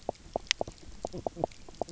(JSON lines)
{"label": "biophony, knock croak", "recorder": "SoundTrap 300"}